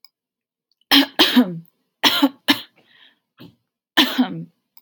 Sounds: Cough